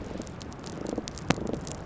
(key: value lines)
label: biophony, damselfish
recorder: SoundTrap 300